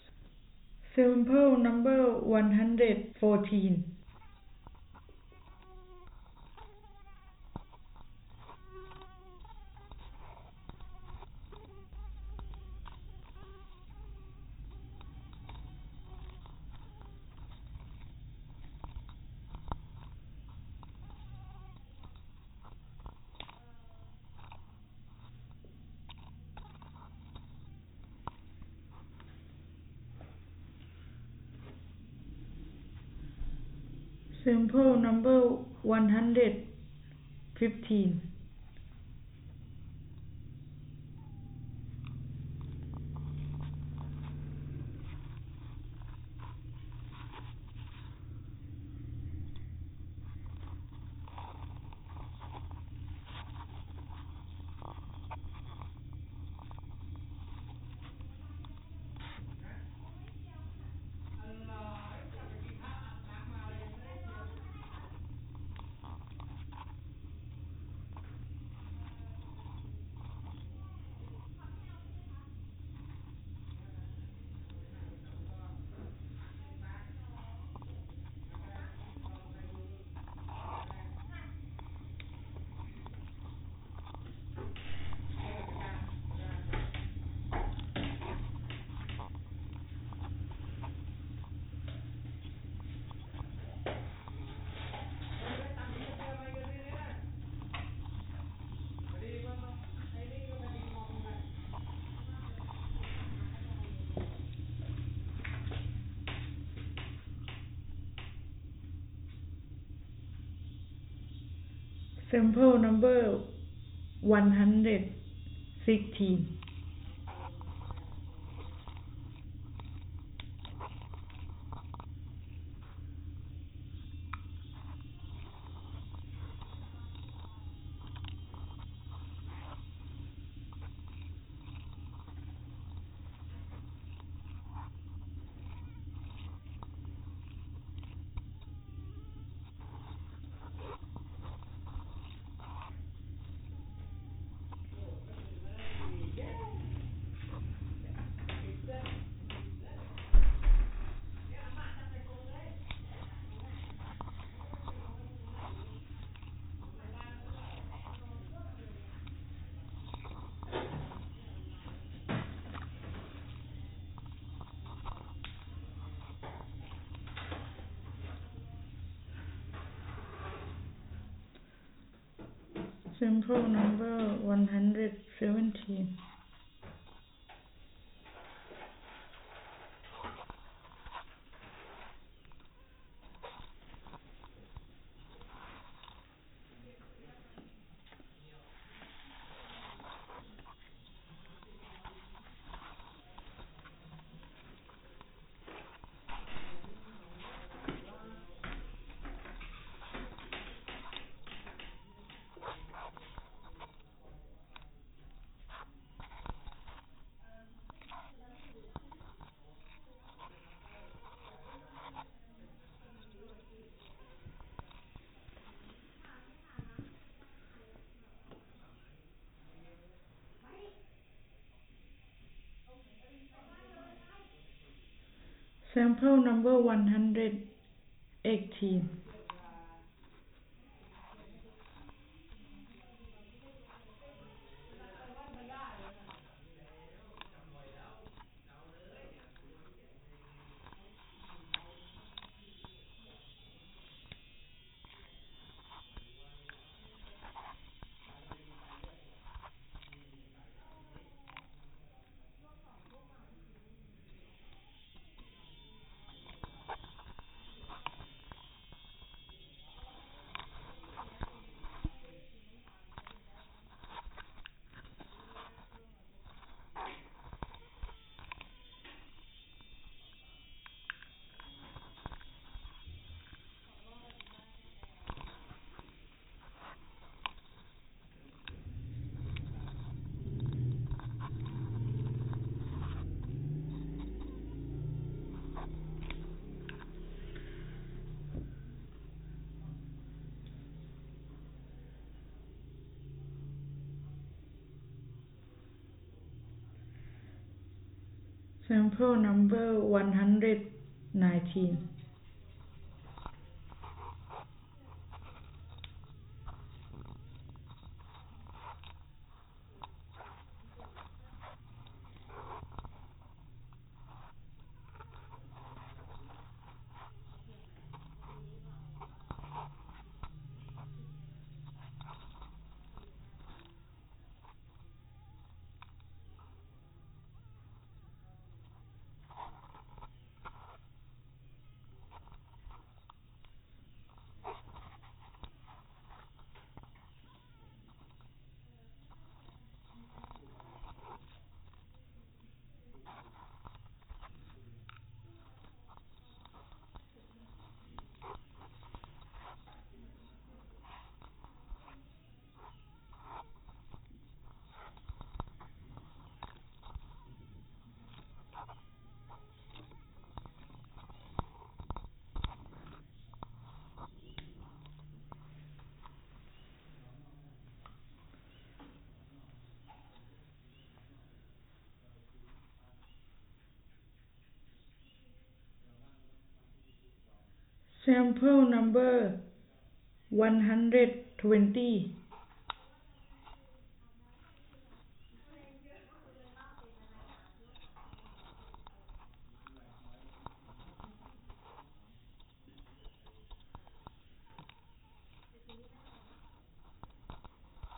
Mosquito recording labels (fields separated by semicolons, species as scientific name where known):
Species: no mosquito; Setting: cup